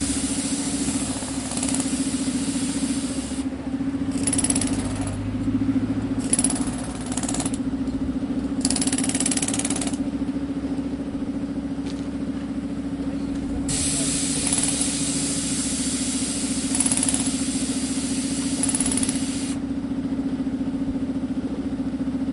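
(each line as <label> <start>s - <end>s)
An outdoor jackhammer and metallic drilling sounds occur occasionally. 0.0s - 10.5s
An outdoor jackhammer and metallic drilling sounds occur occasionally. 13.7s - 22.3s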